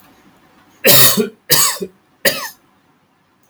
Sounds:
Cough